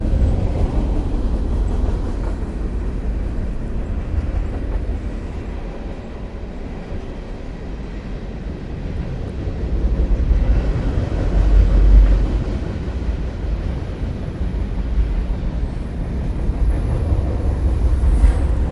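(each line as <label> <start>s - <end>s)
A moving train with the fluttering sound of its wagons followed by rushing wind sounds. 0.0s - 18.7s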